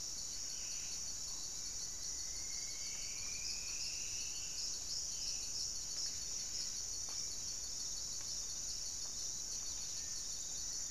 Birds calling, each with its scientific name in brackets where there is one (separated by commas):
Black-faced Antthrush (Formicarius analis), Black-spotted Bare-eye (Phlegopsis nigromaculata), Striped Woodcreeper (Xiphorhynchus obsoletus), Buff-breasted Wren (Cantorchilus leucotis)